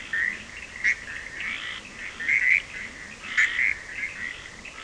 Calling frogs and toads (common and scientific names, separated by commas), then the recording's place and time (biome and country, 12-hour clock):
Bischoff's tree frog (Boana bischoffi), Cochran's lime tree frog (Sphaenorhynchus surdus)
Atlantic Forest, Brazil, 1:30am